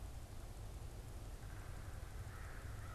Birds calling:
American Crow (Corvus brachyrhynchos), Yellow-bellied Sapsucker (Sphyrapicus varius)

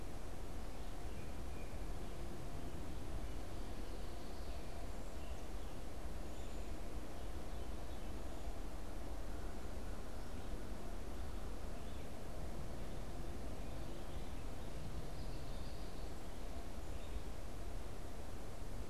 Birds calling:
American Robin (Turdus migratorius)

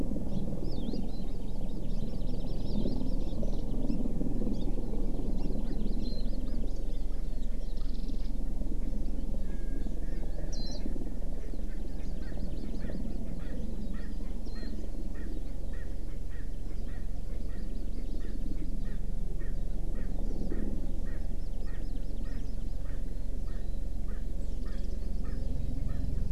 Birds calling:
Erckel's Francolin (Pternistis erckelii), Warbling White-eye (Zosterops japonicus), Hawaii Amakihi (Chlorodrepanis virens)

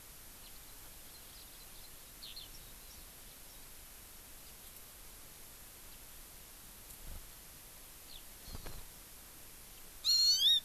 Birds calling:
Hawaii Amakihi (Chlorodrepanis virens), Eurasian Skylark (Alauda arvensis), House Finch (Haemorhous mexicanus)

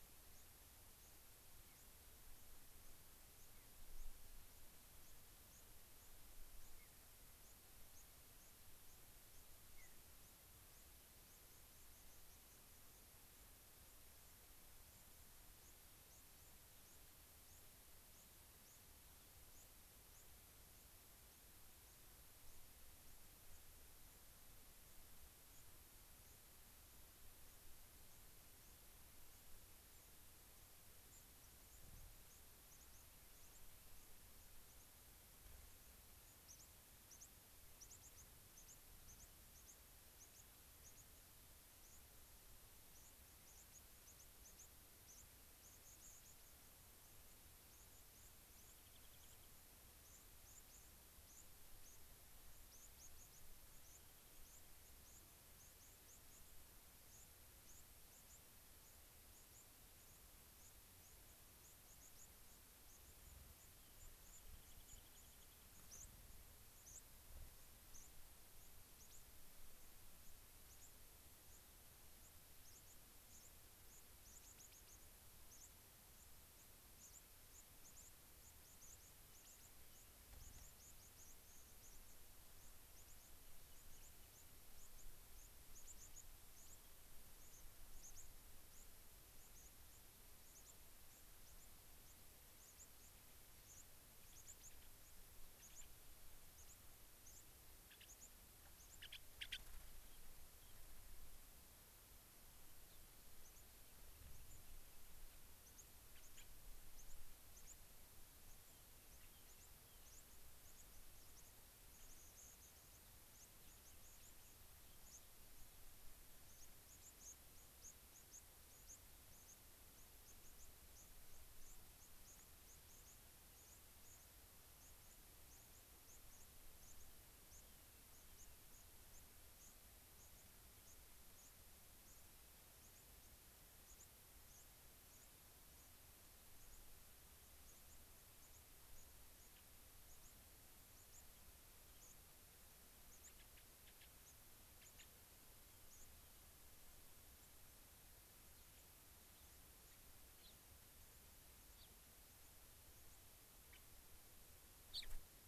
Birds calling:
Mountain Bluebird (Sialia currucoides), Gray-crowned Rosy-Finch (Leucosticte tephrocotis), Rock Wren (Salpinctes obsoletus), White-crowned Sparrow (Zonotrichia leucophrys)

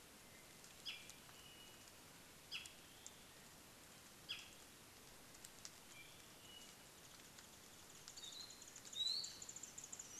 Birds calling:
Warbling White-eye (Zosterops japonicus), Hawaii Akepa (Loxops coccineus), Iiwi (Drepanis coccinea), Apapane (Himatione sanguinea)

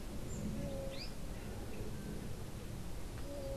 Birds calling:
unidentified bird, Azara's Spinetail (Synallaxis azarae)

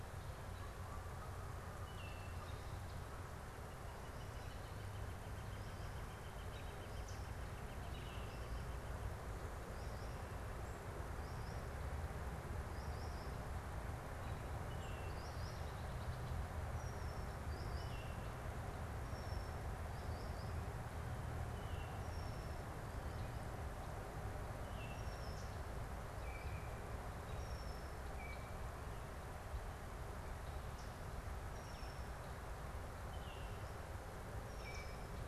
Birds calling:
Red-winged Blackbird (Agelaius phoeniceus), Northern Flicker (Colaptes auratus), American Robin (Turdus migratorius), Baltimore Oriole (Icterus galbula), Solitary Sandpiper (Tringa solitaria)

